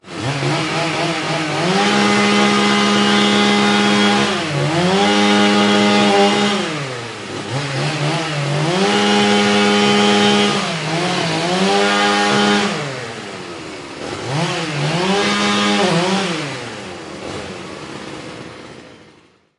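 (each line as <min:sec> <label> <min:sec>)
0:00.0 Chainsaw running at different speeds. 0:19.6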